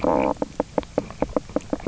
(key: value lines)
label: biophony, knock croak
recorder: SoundTrap 300